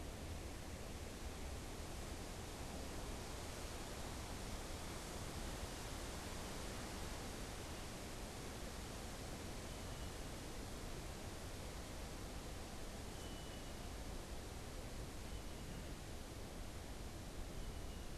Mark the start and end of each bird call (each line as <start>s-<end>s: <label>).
9.5s-18.2s: unidentified bird